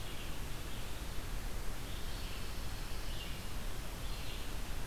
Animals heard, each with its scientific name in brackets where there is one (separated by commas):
Pine Warbler (Setophaga pinus), Red-eyed Vireo (Vireo olivaceus)